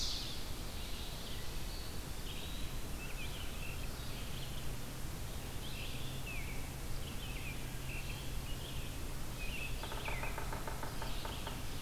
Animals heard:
Eastern Wood-Pewee (Contopus virens), Yellow-bellied Sapsucker (Sphyrapicus varius), American Robin (Turdus migratorius), Red-eyed Vireo (Vireo olivaceus)

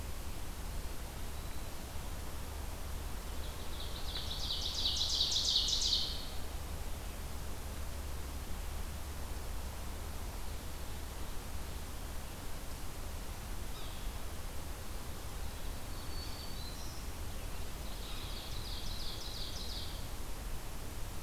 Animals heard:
Yellow-bellied Sapsucker (Sphyrapicus varius), Black-throated Green Warbler (Setophaga virens), Ovenbird (Seiurus aurocapilla)

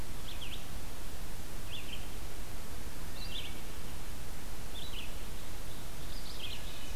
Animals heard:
Red-eyed Vireo (Vireo olivaceus), Wood Thrush (Hylocichla mustelina), Ovenbird (Seiurus aurocapilla)

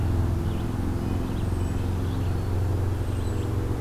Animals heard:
Red-breasted Nuthatch (Sitta canadensis), Red-eyed Vireo (Vireo olivaceus)

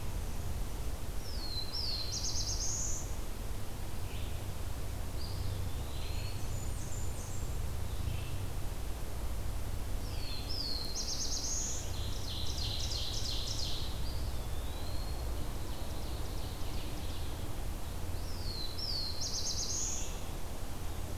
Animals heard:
Red-eyed Vireo (Vireo olivaceus), Eastern Wood-Pewee (Contopus virens), Black-throated Blue Warbler (Setophaga caerulescens), Blackburnian Warbler (Setophaga fusca), Ovenbird (Seiurus aurocapilla)

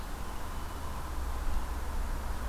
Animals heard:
Blue Jay (Cyanocitta cristata)

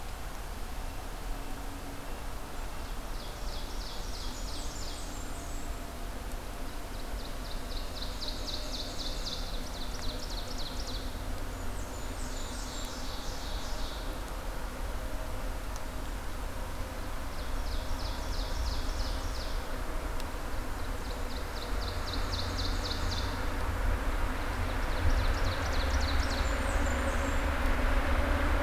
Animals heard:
Blackburnian Warbler (Setophaga fusca), Red-breasted Nuthatch (Sitta canadensis), Ovenbird (Seiurus aurocapilla)

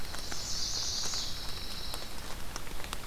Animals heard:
Pine Warbler (Setophaga pinus), Chestnut-sided Warbler (Setophaga pensylvanica)

